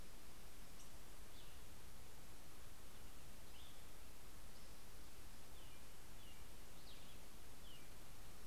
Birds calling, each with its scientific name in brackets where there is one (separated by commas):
Cassin's Vireo (Vireo cassinii), American Robin (Turdus migratorius), Black-headed Grosbeak (Pheucticus melanocephalus)